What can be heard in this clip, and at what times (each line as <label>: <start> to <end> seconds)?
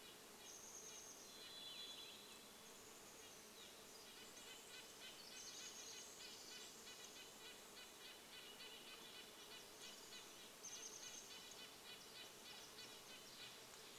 Swainson's Thrush song: 0 to 4 seconds
Varied Thrush song: 0 to 4 seconds
Chestnut-backed Chickadee call: 0 to 8 seconds
Red-breasted Nuthatch song: 0 to 14 seconds
insect buzz: 0 to 14 seconds
Pacific Wren song: 4 to 8 seconds
Chestnut-backed Chickadee call: 10 to 14 seconds